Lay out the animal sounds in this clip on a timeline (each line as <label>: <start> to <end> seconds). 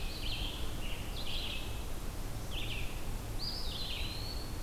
Scarlet Tanager (Piranga olivacea): 0.0 to 2.0 seconds
Red-eyed Vireo (Vireo olivaceus): 0.0 to 4.6 seconds
Eastern Wood-Pewee (Contopus virens): 3.1 to 4.6 seconds